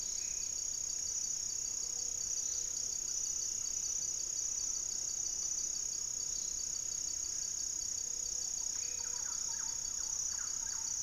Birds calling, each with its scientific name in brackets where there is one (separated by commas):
Thrush-like Wren (Campylorhynchus turdinus), unidentified bird, Gray-fronted Dove (Leptotila rufaxilla), Black-faced Antthrush (Formicarius analis)